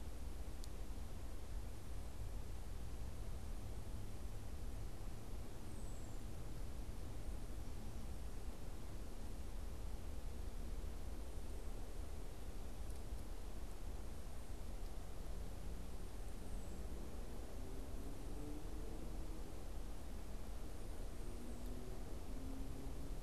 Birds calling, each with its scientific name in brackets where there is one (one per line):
unidentified bird